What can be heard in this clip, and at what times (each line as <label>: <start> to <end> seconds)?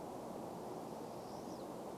Pine Siskin call: 0 to 2 seconds